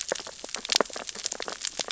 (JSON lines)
{"label": "biophony, sea urchins (Echinidae)", "recorder": "SoundTrap 600 or HydroMoth"}